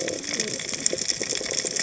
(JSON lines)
{"label": "biophony, cascading saw", "recorder": "HydroMoth"}